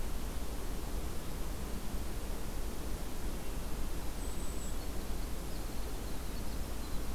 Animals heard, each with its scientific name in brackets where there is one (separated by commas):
Golden-crowned Kinglet (Regulus satrapa), Winter Wren (Troglodytes hiemalis)